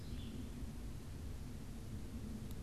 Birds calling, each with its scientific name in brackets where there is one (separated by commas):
unidentified bird